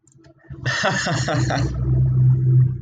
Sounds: Laughter